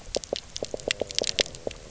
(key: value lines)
label: biophony, knock
recorder: SoundTrap 300